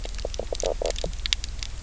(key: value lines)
label: biophony, knock croak
recorder: SoundTrap 300